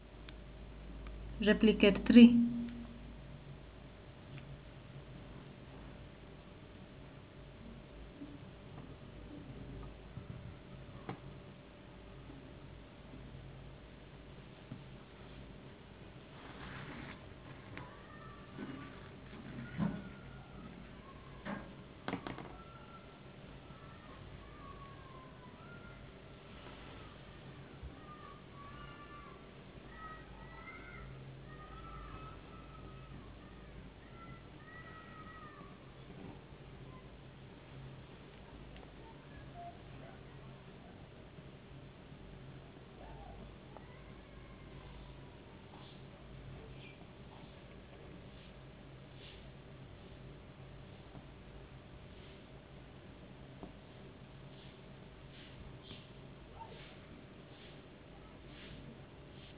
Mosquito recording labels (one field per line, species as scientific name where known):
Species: no mosquito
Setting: insect culture